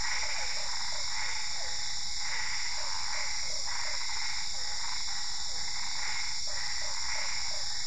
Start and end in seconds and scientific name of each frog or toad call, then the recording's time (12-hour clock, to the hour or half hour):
0.0	6.1	Physalaemus cuvieri
0.0	7.8	Boana albopunctata
0.6	4.0	Boana lundii
6.5	7.7	Boana lundii
~9pm